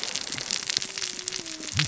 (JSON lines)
{"label": "biophony, cascading saw", "recorder": "SoundTrap 600 or HydroMoth"}